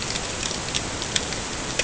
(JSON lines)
{"label": "ambient", "recorder": "HydroMoth"}